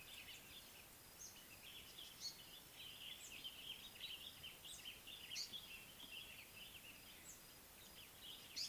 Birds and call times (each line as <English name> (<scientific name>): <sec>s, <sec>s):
Speckled Mousebird (Colius striatus): 3.2s